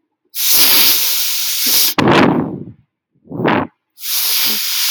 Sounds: Sniff